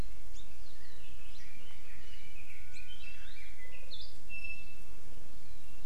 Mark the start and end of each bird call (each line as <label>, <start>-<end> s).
Red-billed Leiothrix (Leiothrix lutea), 0.7-4.0 s
Iiwi (Drepanis coccinea), 4.3-5.1 s